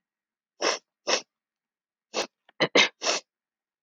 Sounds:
Sniff